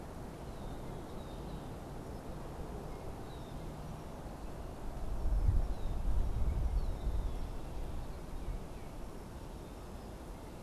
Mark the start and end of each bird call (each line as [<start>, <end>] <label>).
[0.00, 10.62] Red-winged Blackbird (Agelaius phoeniceus)
[8.00, 9.10] Tufted Titmouse (Baeolophus bicolor)